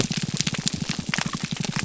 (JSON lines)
{"label": "biophony, pulse", "recorder": "SoundTrap 300"}